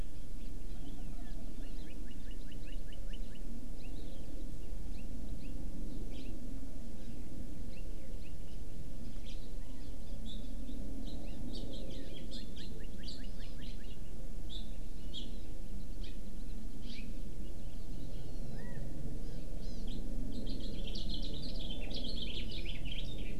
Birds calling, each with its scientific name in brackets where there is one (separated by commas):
Chinese Hwamei (Garrulax canorus), Northern Cardinal (Cardinalis cardinalis), House Finch (Haemorhous mexicanus), Hawaii Amakihi (Chlorodrepanis virens)